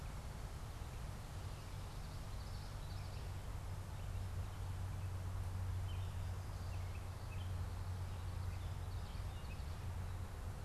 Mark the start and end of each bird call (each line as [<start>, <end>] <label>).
[0.00, 10.29] Gray Catbird (Dumetella carolinensis)
[1.69, 3.39] Common Yellowthroat (Geothlypis trichas)
[7.99, 9.89] Common Yellowthroat (Geothlypis trichas)